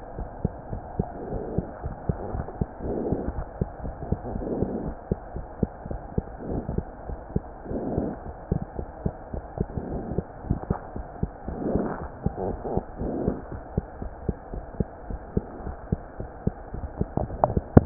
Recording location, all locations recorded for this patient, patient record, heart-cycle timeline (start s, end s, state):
mitral valve (MV)
aortic valve (AV)+pulmonary valve (PV)+tricuspid valve (TV)+mitral valve (MV)
#Age: Child
#Sex: Male
#Height: 94.0 cm
#Weight: 13.6 kg
#Pregnancy status: False
#Murmur: Absent
#Murmur locations: nan
#Most audible location: nan
#Systolic murmur timing: nan
#Systolic murmur shape: nan
#Systolic murmur grading: nan
#Systolic murmur pitch: nan
#Systolic murmur quality: nan
#Diastolic murmur timing: nan
#Diastolic murmur shape: nan
#Diastolic murmur grading: nan
#Diastolic murmur pitch: nan
#Diastolic murmur quality: nan
#Outcome: Abnormal
#Campaign: 2015 screening campaign
0.00	13.49	unannotated
13.49	13.62	S1
13.62	13.73	systole
13.73	13.83	S2
13.83	13.98	diastole
13.98	14.10	S1
14.10	14.25	systole
14.25	14.36	S2
14.36	14.49	diastole
14.49	14.61	S1
14.61	14.76	systole
14.76	14.86	S2
14.86	15.06	diastole
15.06	15.20	S1
15.20	15.34	systole
15.34	15.44	S2
15.44	15.64	diastole
15.64	15.76	S1
15.76	15.89	systole
15.89	16.00	S2
16.00	16.17	diastole
16.17	16.30	S1
16.30	16.44	systole
16.44	16.52	S2
16.52	16.72	diastole
16.72	16.86	S1
16.86	16.96	systole
16.96	17.08	S2
17.08	17.86	unannotated